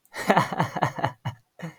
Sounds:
Laughter